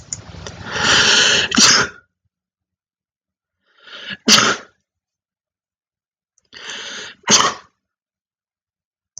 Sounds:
Sneeze